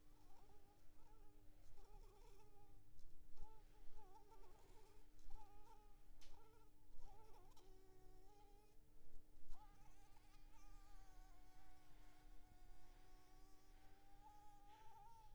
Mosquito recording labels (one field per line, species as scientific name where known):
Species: Anopheles arabiensis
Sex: female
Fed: blood-fed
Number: one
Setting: cup